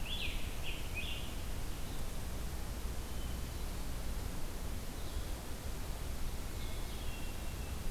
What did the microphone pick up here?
Scarlet Tanager, Red-eyed Vireo, Hermit Thrush